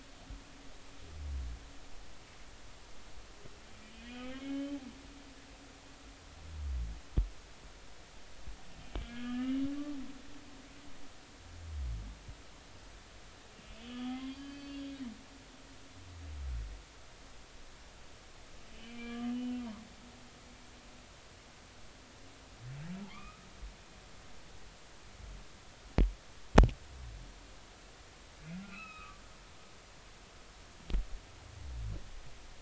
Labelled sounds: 3.9	4.8	humpback whale, 2.1 to 3.3 kHz
8.9	9.6	humpback whale, 1.2 to 3.3 kHz
13.8	14.8	humpback whale, 0.99 to 4.9 kHz
18.7	19.6	humpback whale, 1.1 to 3.1 kHz
23.1	23.5	humpback whale, 0.93 to 2.6 kHz
28.5	29.2	humpback whale, 1.1 to 5.2 kHz

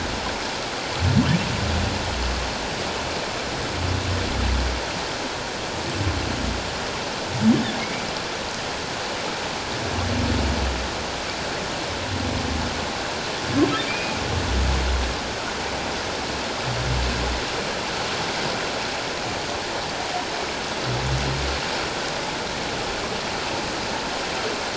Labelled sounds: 13.8	14.2	humpback whale, 2.2 to 2.5 kHz

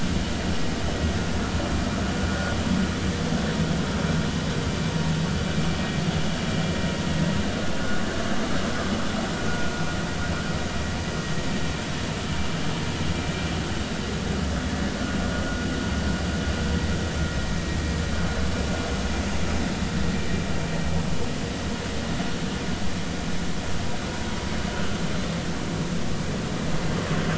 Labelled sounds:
2.3	2.5	vessel noise, 1.4 to 1.5 kHz
9.5	9.7	vessel noise, 1.4 to 1.5 kHz

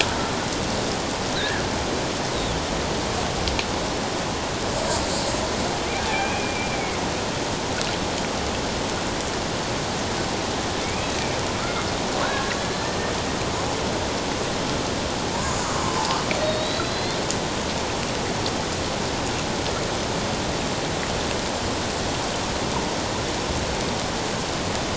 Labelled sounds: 1.4	1.6	killer whale, Bigg's (transient), 1.5 to 1.9 kHz
6.1	7.0	killer whale, Bigg's (transient), 2.0 to 2.7 kHz
10.8	11.2	killer whale, Bigg's (transient), 2.1 to 2.7 kHz
11.6	11.8	killer whale, Bigg's (transient), 1.1 to 1.5 kHz
12.2	13.0	killer whale, Bigg's (transient), 1.3 to 1.9 kHz
15.3	16.1	killer whale, Bigg's (transient), 0.81 to 1.1 kHz
16.4	17.2	killer whale, Bigg's (transient), 3.7 to 4.5 kHz

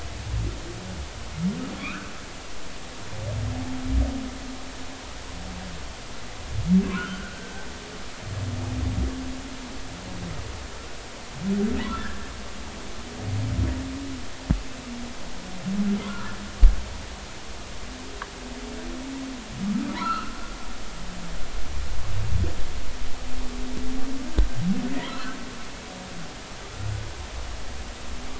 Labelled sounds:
1.8	2.1	humpback whale, 1.1 to 1.8 kHz
6.9	7.4	humpback whale, 1.2 to 1.6 kHz
11.9	12.2	humpback whale, 1.2 to 1.8 kHz
16.0	16.4	humpback whale, 0.96 to 1.5 kHz
19.9	20.3	humpback whale, 1.2 to 4.4 kHz
25.1	25.4	humpback whale, 1.2 to 1.5 kHz

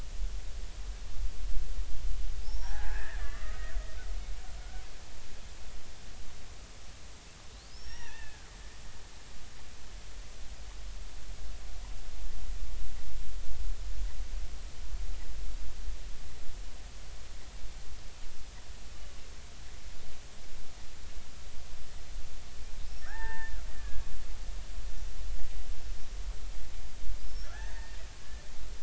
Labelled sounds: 2.4	3.7	killer whale, Bigg's (transient), 0.80 to 5.7 kHz
7.7	8.5	killer whale, Bigg's (transient), 0.83 to 6.0 kHz
22.9	24.0	killer whale, Bigg's (transient), 0.80 to 5.6 kHz
25.3	25.7	killer whale, Bigg's (transient), 1.9 to 2.0 kHz
27.2	28.0	killer whale, Bigg's (transient), 0.80 to 5.6 kHz

